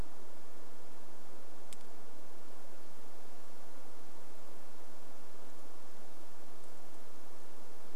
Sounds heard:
forest ambience